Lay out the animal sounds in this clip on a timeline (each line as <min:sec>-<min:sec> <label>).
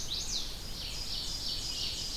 0:00.0-0:02.2 Red-eyed Vireo (Vireo olivaceus)
0:00.4-0:02.2 Ovenbird (Seiurus aurocapilla)